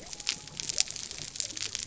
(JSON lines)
{"label": "biophony", "recorder": "SoundTrap 300"}